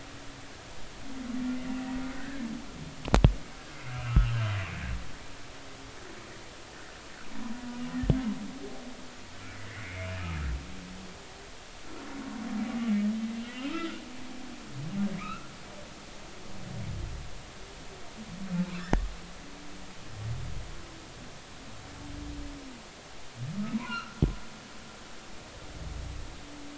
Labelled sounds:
2.2	2.4	humpback whale, 1.5 to 2.0 kHz
3.9	4.3	humpback whale, 1.2 to 1.5 kHz
9.6	10.1	humpback whale, 1.9 to 2.5 kHz
13.7	14.0	humpback whale, 1.2 to 1.5 kHz
15.2	15.5	humpback whale, 1.2 to 2.8 kHz
23.7	24.2	humpback whale, 0.93 to 1.6 kHz

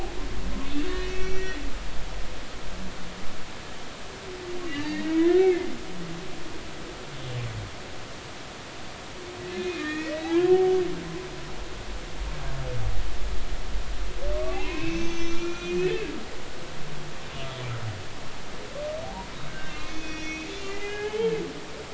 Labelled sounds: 1.0	1.6	humpback whale, 1.8 to 5.8 kHz
4.7	5.7	humpback whale, 1.6 to 2.3 kHz
9.4	10.4	humpback whale, 1.7 to 3.5 kHz
14.4	16.1	humpback whale, 0.80 to 6.5 kHz
19.0	21.5	humpback whale, 0.80 to 6.3 kHz

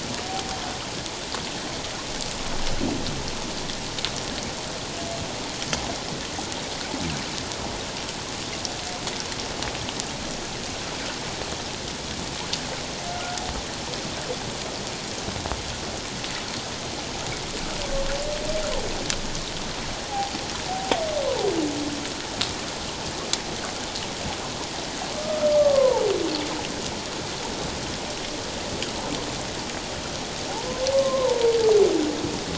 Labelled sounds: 13.1	13.4	humpback whale, 1.3 to 1.5 kHz
25.2	26.0	humpback whale, 0.81 to 1.4 kHz
30.5	31.4	humpback whale, 0.78 to 1.1 kHz

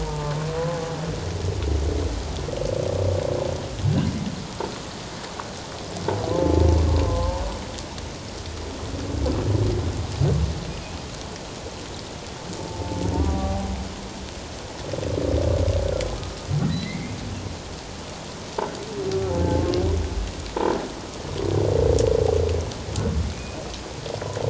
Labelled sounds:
0.0	0.4	humpback whale, 0.84 to 1.2 kHz
6.3	6.7	humpback whale, 0.84 to 0.91 kHz
7.1	7.3	humpback whale, 0.97 to 1.1 kHz
12.7	13.7	humpback whale, 0.78 to 1.2 kHz
16.7	17.2	humpback whale, 1.9 to 4.1 kHz
23.3	23.6	humpback whale, 2.4 to 2.6 kHz

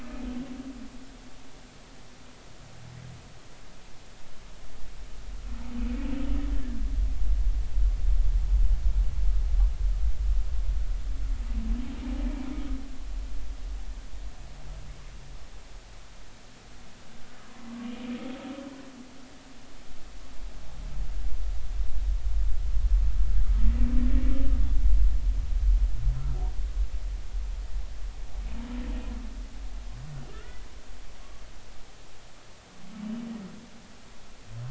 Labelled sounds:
30.3	30.6	humpback whale, 1.2 to 1.5 kHz

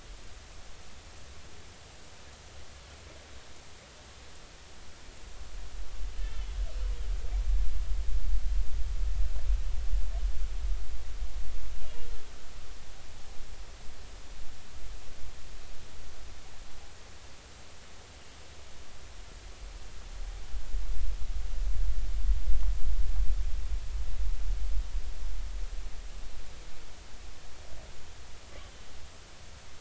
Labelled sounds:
6.2	6.6	killer whale, northern resident, A clan, 2.9 to 3.6 kHz

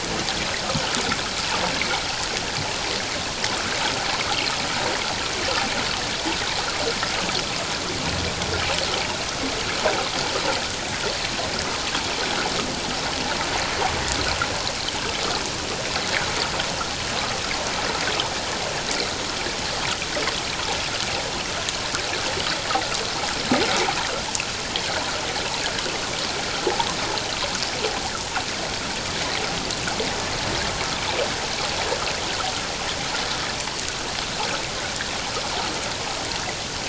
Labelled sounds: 1.8	2.0	water noise, 2.0 to 2.4 kHz

